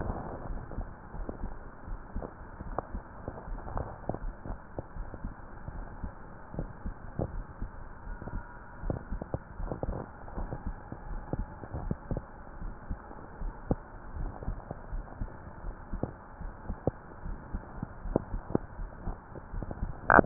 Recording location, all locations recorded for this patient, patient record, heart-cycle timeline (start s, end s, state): pulmonary valve (PV)
aortic valve (AV)+pulmonary valve (PV)+tricuspid valve (TV)+mitral valve (MV)
#Age: Adolescent
#Sex: Male
#Height: 174.0 cm
#Weight: 108.6 kg
#Pregnancy status: False
#Murmur: Present
#Murmur locations: mitral valve (MV)+pulmonary valve (PV)+tricuspid valve (TV)
#Most audible location: tricuspid valve (TV)
#Systolic murmur timing: Holosystolic
#Systolic murmur shape: Plateau
#Systolic murmur grading: I/VI
#Systolic murmur pitch: Low
#Systolic murmur quality: Blowing
#Diastolic murmur timing: nan
#Diastolic murmur shape: nan
#Diastolic murmur grading: nan
#Diastolic murmur pitch: nan
#Diastolic murmur quality: nan
#Outcome: Abnormal
#Campaign: 2015 screening campaign
0.00	0.16	unannotated
0.16	0.46	diastole
0.46	0.62	S1
0.62	0.74	systole
0.74	0.88	S2
0.88	1.18	diastole
1.18	1.28	S1
1.28	1.40	systole
1.40	1.54	S2
1.54	1.90	diastole
1.90	2.02	S1
2.02	2.12	systole
2.12	2.24	S2
2.24	2.60	diastole
2.60	2.76	S1
2.76	2.90	systole
2.90	3.04	S2
3.04	3.48	diastole
3.48	3.60	S1
3.60	3.72	systole
3.72	3.88	S2
3.88	4.20	diastole
4.20	4.34	S1
4.34	4.46	systole
4.46	4.56	S2
4.56	4.98	diastole
4.98	5.10	S1
5.10	5.22	systole
5.22	5.32	S2
5.32	5.72	diastole
5.72	5.86	S1
5.86	6.00	systole
6.00	6.10	S2
6.10	6.54	diastole
6.54	6.68	S1
6.68	6.82	systole
6.82	6.96	S2
6.96	7.32	diastole
7.32	7.44	S1
7.44	7.60	systole
7.60	7.70	S2
7.70	8.06	diastole
8.06	8.18	S1
8.18	8.34	systole
8.34	8.44	S2
8.44	8.84	diastole
8.84	9.00	S1
9.00	9.12	systole
9.12	9.26	S2
9.26	9.60	diastole
9.60	9.78	S1
9.78	9.88	systole
9.88	10.02	S2
10.02	10.38	diastole
10.38	10.52	S1
10.52	10.64	systole
10.64	10.76	S2
10.76	11.10	diastole
11.10	11.24	S1
11.24	11.32	systole
11.32	11.46	S2
11.46	11.80	diastole
11.80	11.98	S1
11.98	12.10	systole
12.10	12.24	S2
12.24	12.60	diastole
12.60	12.74	S1
12.74	12.88	systole
12.88	13.02	S2
13.02	13.42	diastole
13.42	13.56	S1
13.56	13.68	systole
13.68	13.80	S2
13.80	14.14	diastole
14.14	14.32	S1
14.32	14.46	systole
14.46	14.62	S2
14.62	14.92	diastole
14.92	15.06	S1
15.06	15.22	systole
15.22	15.30	S2
15.30	15.66	diastole
15.66	15.76	S1
15.76	15.92	systole
15.92	16.08	S2
16.08	16.42	diastole
16.42	16.56	S1
16.56	16.67	systole
16.67	16.77	S2
16.77	17.26	diastole
17.26	17.38	S1
17.38	17.52	systole
17.52	17.66	S2
17.66	18.04	diastole
18.04	18.16	S1
18.16	18.28	systole
18.28	18.42	S2
18.42	18.78	diastole
18.78	18.92	S1
18.92	19.06	systole
19.06	19.22	S2
19.22	19.54	diastole
19.54	20.26	unannotated